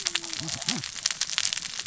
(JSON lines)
{"label": "biophony, cascading saw", "recorder": "SoundTrap 600 or HydroMoth"}